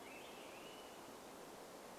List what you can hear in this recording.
Swainson's Thrush call, Swainson's Thrush song